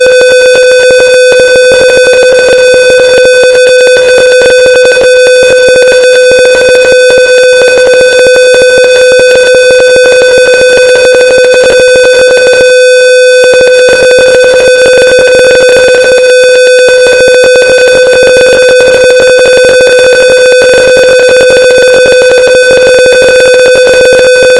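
A siren or alarm is going off. 0:00.0 - 0:24.6
A constant ticking sound similar to a Geiger counter. 0:00.1 - 0:12.4

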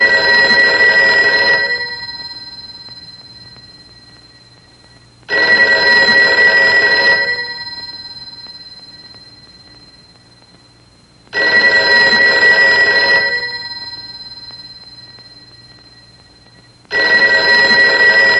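A telephone rings loudly and repeatedly nearby. 0:00.0 - 0:18.4

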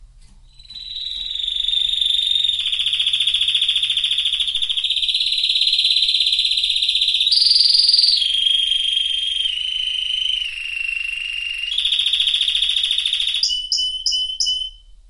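A canary sings various melodies. 0:00.7 - 0:15.1

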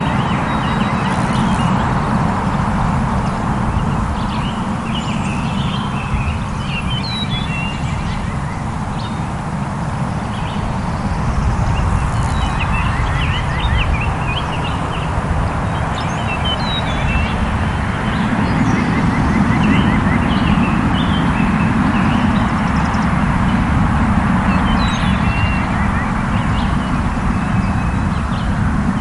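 Distant car noise. 0:00.0 - 0:29.0
Birds chirping continuously outdoors. 0:00.0 - 0:29.0
Loud wind gusts occur periodically. 0:18.8 - 0:29.0

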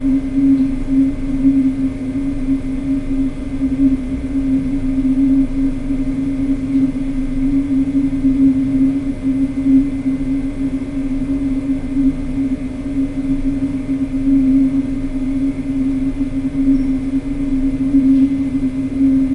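A humming sound is heard, vibrating with an empty, metallic loneliness. 0:00.1 - 0:19.3

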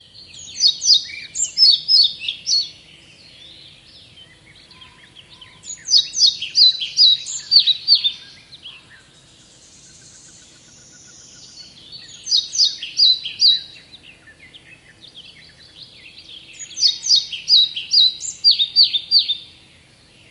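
Several birds are chirping repeatedly outdoors. 0:00.0 - 0:03.2
Several birds are chirping repeatedly outdoors. 0:05.1 - 0:09.2
Several birds are chirping repeatedly outdoors. 0:11.3 - 0:14.7
Several birds are chirping repeatedly outdoors. 0:15.9 - 0:19.9

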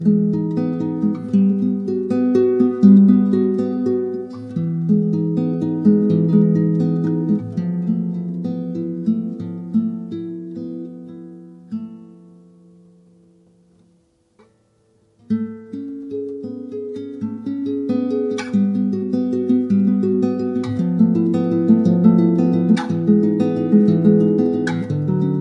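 A calming melody played on a nylon-string guitar that slows down at the end. 0:00.0 - 0:14.0
A nylon-string guitar plays a melody that starts slow and calming, then becomes fast and hectic. 0:15.2 - 0:25.4

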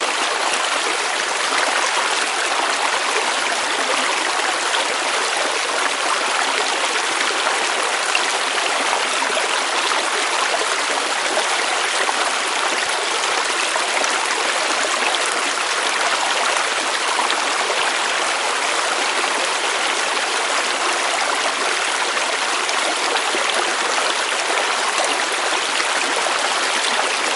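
Water flowing in a river. 0:00.0 - 0:27.4

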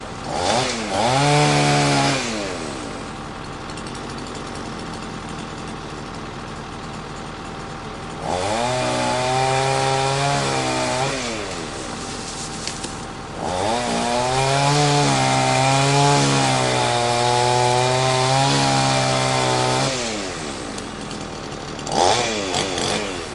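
A chainsaw is running loudly. 0:00.0 - 0:02.8
A chainsaw runs continuously. 0:02.6 - 0:08.1
A chainsaw is running loudly. 0:08.2 - 0:11.4
A chainsaw runs continuously. 0:11.4 - 0:13.4
A chainsaw is running loudly. 0:13.4 - 0:20.3
A chainsaw runs continuously. 0:20.3 - 0:21.8
A chainsaw is running loudly. 0:21.8 - 0:23.3

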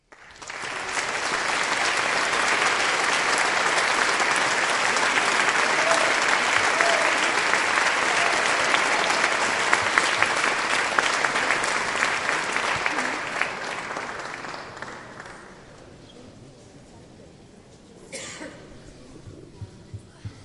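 A large, echoing applause fills the space as a crowd claps. 0:00.0 - 0:15.0
After applause, someone in the crowd coughs. 0:17.8 - 0:18.9

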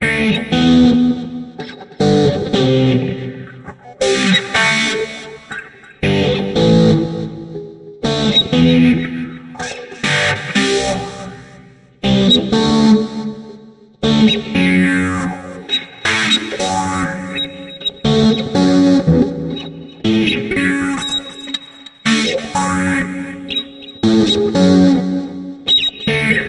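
An electric guitar plays different distorted tones repeatedly and loudly. 0:00.0 - 0:26.5

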